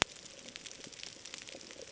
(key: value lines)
label: ambient
recorder: HydroMoth